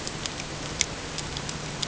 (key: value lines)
label: ambient
recorder: HydroMoth